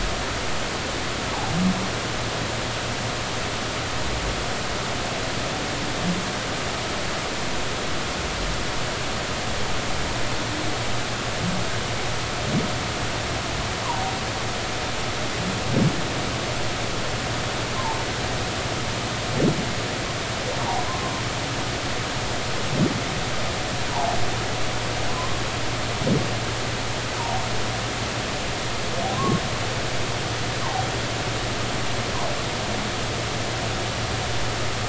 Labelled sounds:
20.6	21.1	humpback whale, 0.80 to 1.1 kHz
23.9	24.2	humpback whale, 0.80 to 1.0 kHz
25.1	25.4	humpback whale, 0.96 to 1.1 kHz
27.2	27.5	humpback whale, 0.80 to 0.99 kHz
29.1	29.4	humpback whale, 0.99 to 1.2 kHz

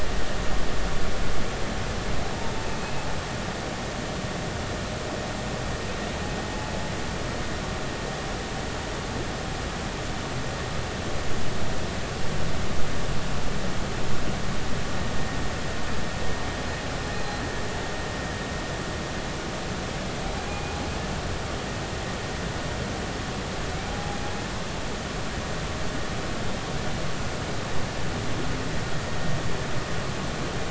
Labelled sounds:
2.8	3.1	humpback whale, 2.5 to 2.7 kHz
20.5	20.8	humpback whale, 2.4 to 2.5 kHz
23.9	24.2	humpback whale, 0.80 to 0.86 kHz

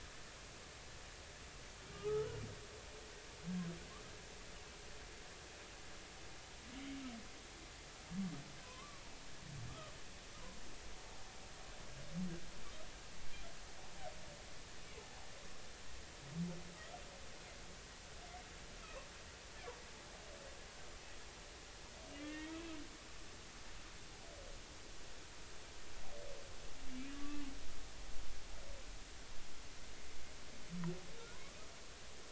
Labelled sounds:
1.9	2.3	humpback whale, 1.1 to 1.4 kHz
8.6	9.0	humpback whale, 0.96 to 1.2 kHz
22.2	22.6	humpback whale, 1.7 to 2.3 kHz
27.1	27.4	humpback whale, 1.1 to 1.2 kHz
31.3	31.6	humpback whale, 0.96 to 1.2 kHz

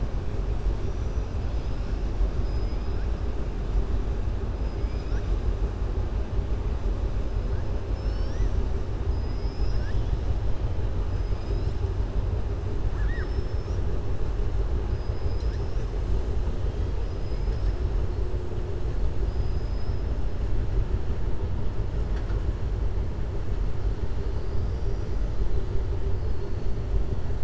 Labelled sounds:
0.8	1.3	killer whale, southern resident, 5.7 to 6.7 kHz
9.1	10.1	killer whale, southern resident, 1.5 to 5.9 kHz
14.8	15.9	killer whale, southern resident, 3.9 to 7.0 kHz
17.0	17.8	killer whale, southern resident, 3.8 to 5.8 kHz
19.2	20.0	killer whale, southern resident, 4.9 to 6.0 kHz

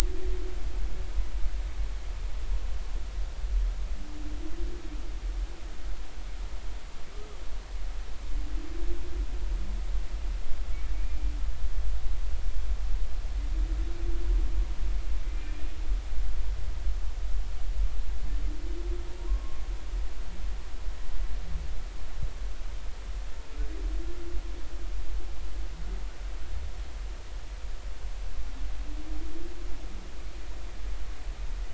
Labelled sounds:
11.0	11.3	humpback whale, 2.3 to 2.5 kHz
19.2	19.6	humpback whale, 0.90 to 1.1 kHz

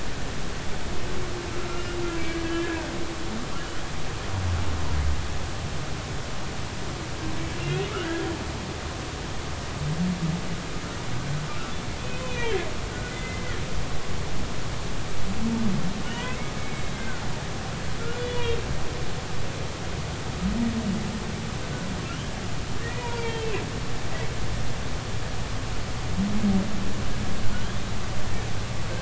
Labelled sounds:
2.4	2.9	humpback whale, 1.5 to 1.8 kHz
7.9	8.3	humpback whale, 1.2 to 1.7 kHz
12.1	13.6	humpback whale, 1.4 to 3.6 kHz
16.1	17.2	humpback whale, 1.4 to 2.3 kHz
18.2	18.7	humpback whale, 2.7 to 3.0 kHz
22.8	23.5	humpback whale, 0.90 to 3.3 kHz

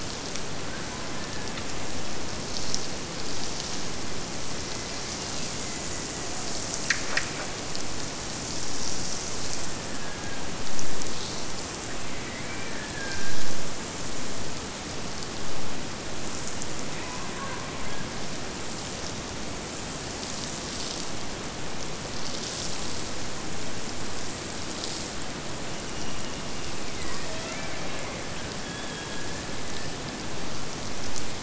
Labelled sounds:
5.1	6.4	killer whale, Bigg's (transient), Gulf of Alaska transient, 1.7 to 3.0 kHz
9.1	10.5	killer whale, Bigg's (transient), Gulf of Alaska transient, 1.5 to 3.3 kHz
11.8	13.5	killer whale, Bigg's (transient), Gulf of Alaska transient, 1.4 to 2.6 kHz
25.6	29.5	killer whale, Bigg's (transient), Gulf of Alaska transient, 0.48 to 3.6 kHz

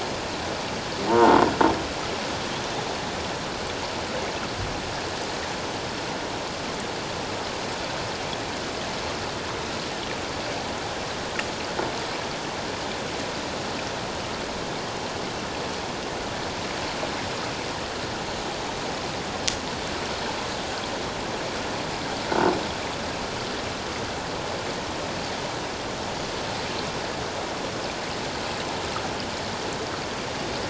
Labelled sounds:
1.1	1.4	croaking sound likely from a nearby submerged object, 0.84 to 1.1 kHz

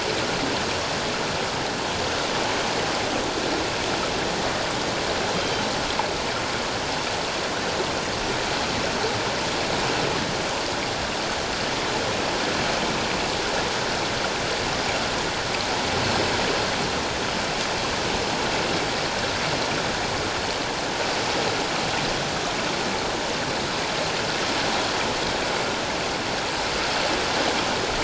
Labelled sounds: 5.4	5.7	killer whale, northern resident, G clan, call N24ii, 3.1 to 6.4 kHz

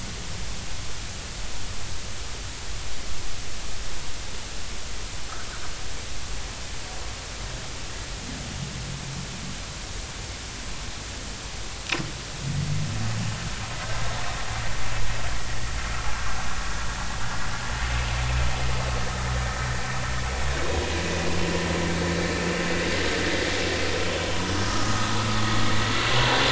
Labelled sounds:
24.6	25.1	vessel noise, 1.2 to 1.3 kHz

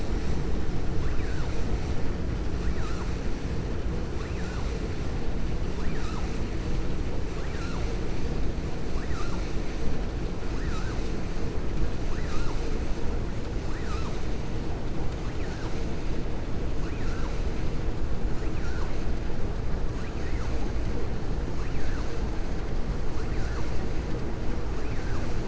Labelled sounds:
18.4	18.9	vessel noise, 0.91 to 2.7 kHz

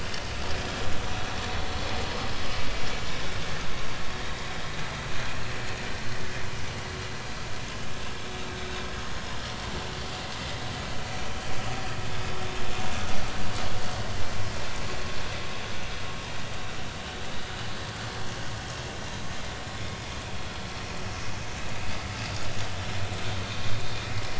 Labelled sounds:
19.8	20.1	vessel noise, 3.3 to 3.6 kHz
22.1	22.4	vessel noise, 4.7 to 4.9 kHz

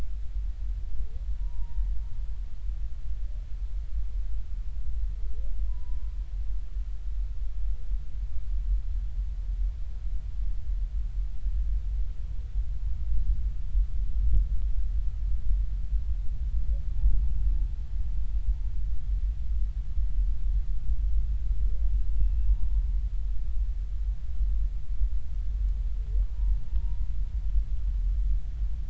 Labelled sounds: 1.4	1.8	humpback whale, 0.86 to 1.0 kHz
5.7	6.1	humpback whale, 0.93 to 1.1 kHz
16.9	17.2	humpback whale, 0.80 to 0.90 kHz
22.2	22.7	humpback whale, 0.90 to 2.8 kHz
26.3	27.0	humpback whale, 0.86 to 0.99 kHz

